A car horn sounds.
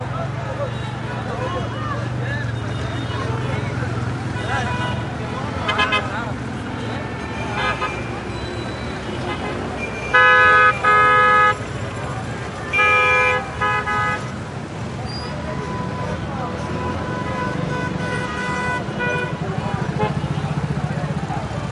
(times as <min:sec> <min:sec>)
0:05.7 0:06.0, 0:07.3 0:07.9, 0:10.1 0:11.5, 0:12.7 0:14.2